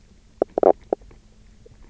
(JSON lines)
{"label": "biophony, knock croak", "recorder": "SoundTrap 300"}